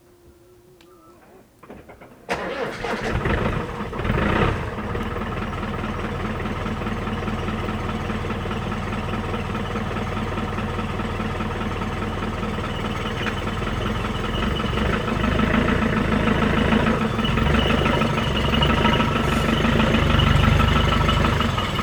Did the car engine turn on?
yes